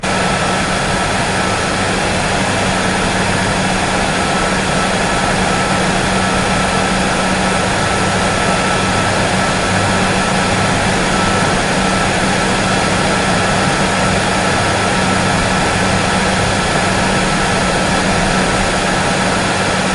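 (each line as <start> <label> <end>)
0.0 A clear, loud, and steady sound of a hairdryer running. 19.9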